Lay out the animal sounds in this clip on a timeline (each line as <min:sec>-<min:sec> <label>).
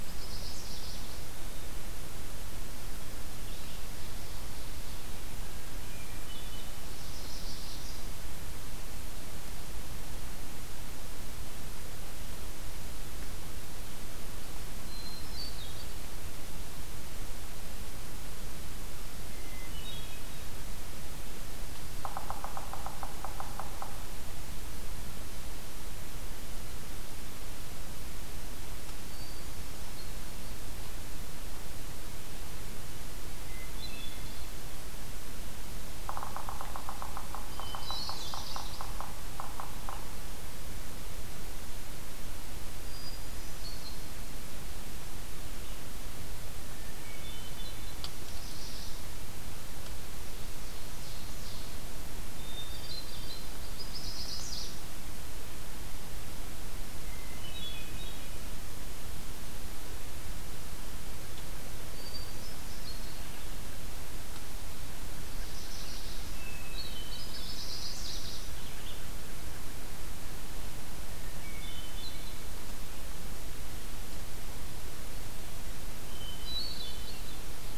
0:00.0-0:01.1 Chestnut-sided Warbler (Setophaga pensylvanica)
0:03.2-0:04.8 Ovenbird (Seiurus aurocapilla)
0:05.9-0:06.8 Hermit Thrush (Catharus guttatus)
0:06.9-0:08.1 Chestnut-sided Warbler (Setophaga pensylvanica)
0:14.8-0:16.1 Hermit Thrush (Catharus guttatus)
0:19.2-0:20.6 Hermit Thrush (Catharus guttatus)
0:21.9-0:23.9 Yellow-bellied Sapsucker (Sphyrapicus varius)
0:29.1-0:30.5 Hermit Thrush (Catharus guttatus)
0:33.3-0:34.5 Hermit Thrush (Catharus guttatus)
0:36.0-0:40.1 Yellow-bellied Sapsucker (Sphyrapicus varius)
0:37.5-0:38.5 Hermit Thrush (Catharus guttatus)
0:37.8-0:38.9 Chestnut-sided Warbler (Setophaga pensylvanica)
0:42.7-0:44.1 Hermit Thrush (Catharus guttatus)
0:46.8-0:48.0 Hermit Thrush (Catharus guttatus)
0:48.2-0:49.2 Chestnut-sided Warbler (Setophaga pensylvanica)
0:50.0-0:51.8 Ovenbird (Seiurus aurocapilla)
0:52.4-0:53.5 Hermit Thrush (Catharus guttatus)
0:53.7-0:54.8 Chestnut-sided Warbler (Setophaga pensylvanica)
0:57.0-0:58.5 Hermit Thrush (Catharus guttatus)
1:01.8-1:03.2 Hermit Thrush (Catharus guttatus)
1:05.2-1:06.5 Chestnut-sided Warbler (Setophaga pensylvanica)
1:06.3-1:07.5 Hermit Thrush (Catharus guttatus)
1:07.2-1:08.5 Chestnut-sided Warbler (Setophaga pensylvanica)
1:08.4-1:09.1 Red-eyed Vireo (Vireo olivaceus)
1:11.3-1:12.6 Hermit Thrush (Catharus guttatus)
1:15.9-1:17.5 Hermit Thrush (Catharus guttatus)